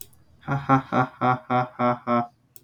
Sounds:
Laughter